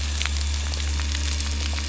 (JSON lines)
{"label": "anthrophony, boat engine", "recorder": "SoundTrap 300"}